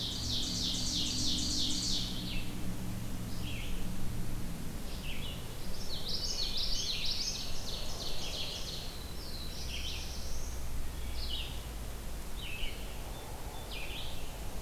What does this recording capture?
Ovenbird, Red-eyed Vireo, Common Yellowthroat, Black-throated Blue Warbler, Wood Thrush